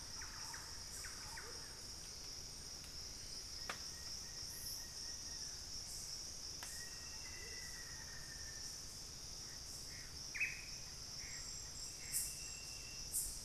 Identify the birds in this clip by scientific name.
Momotus momota, Campylorhynchus turdinus, Thamnophilus schistaceus, Formicarius analis, Cercomacra cinerascens